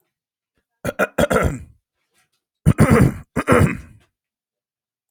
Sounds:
Throat clearing